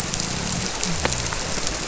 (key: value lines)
label: biophony
recorder: SoundTrap 300